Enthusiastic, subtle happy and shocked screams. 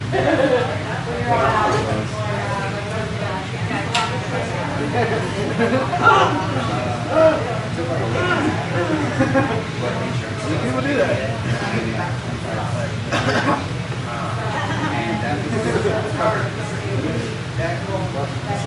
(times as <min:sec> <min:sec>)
0:06.0 0:07.5